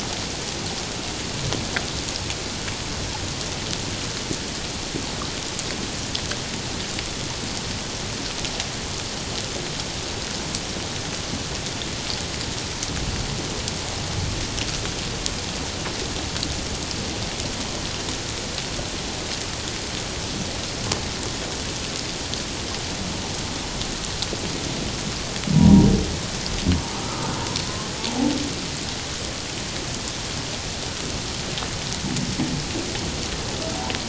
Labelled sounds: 25.5	25.9	humpback whale, 0.91 to 1.1 kHz
27.0	27.3	humpback whale, 1.2 to 1.4 kHz

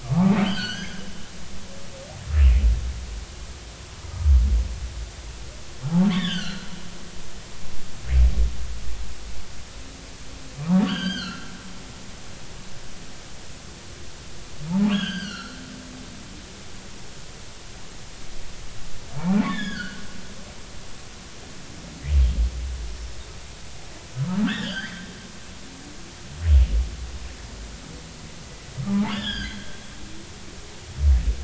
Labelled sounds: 0.0	1.0	humpback whale, 0.80 to 6.4 kHz
6.1	6.7	humpback whale, 1.3 to 4.9 kHz
10.6	11.5	humpback whale, 0.80 to 4.9 kHz
14.9	15.6	humpback whale, 1.3 to 6.1 kHz
19.2	20.0	humpback whale, 0.80 to 5.2 kHz
24.4	25.0	humpback whale, 1.3 to 4.9 kHz
29.1	29.7	humpback whale, 1.5 to 5.3 kHz

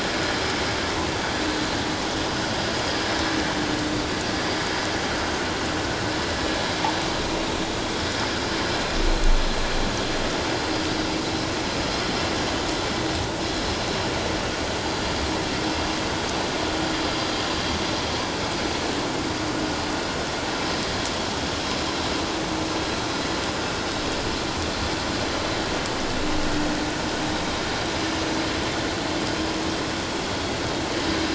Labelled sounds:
17.1	17.3	vessel noise, 4.7 to 4.9 kHz

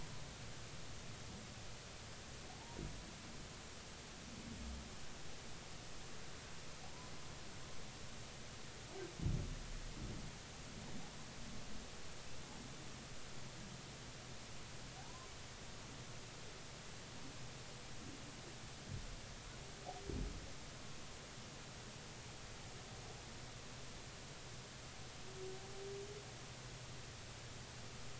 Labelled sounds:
6.8	7.1	humpback whale, 0.80 to 1.1 kHz
15.0	15.3	humpback whale, 0.80 to 1.1 kHz

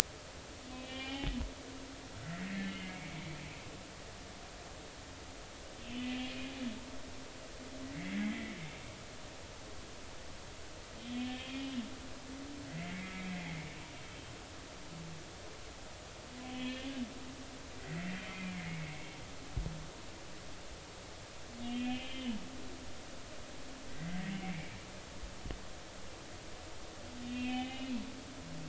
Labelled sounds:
0.7	1.3	humpback whale, 0.80 to 3.3 kHz
2.5	3.3	humpback whale, 1.9 to 2.9 kHz
5.9	6.2	humpback whale, 2.4 to 2.6 kHz
7.9	8.6	humpback whale, 1.9 to 2.3 kHz
11.0	11.8	humpback whale, 2.4 to 3.5 kHz
12.7	13.7	humpback whale, 1.9 to 2.3 kHz
16.5	17.0	humpback whale, 1.7 to 3.5 kHz
17.8	19.2	humpback whale, 1.8 to 2.5 kHz
21.6	22.4	humpback whale, 2.4 to 3.3 kHz
23.9	24.8	humpback whale, 1.9 to 2.5 kHz
27.3	28.0	humpback whale, 0.80 to 3.3 kHz

